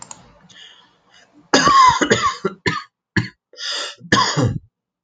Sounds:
Cough